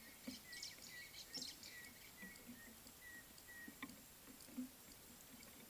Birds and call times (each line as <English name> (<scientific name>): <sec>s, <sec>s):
White-browed Sparrow-Weaver (Plocepasser mahali): 1.4s
African Gray Hornbill (Lophoceros nasutus): 3.1s